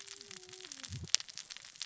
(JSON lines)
{"label": "biophony, cascading saw", "recorder": "SoundTrap 600 or HydroMoth"}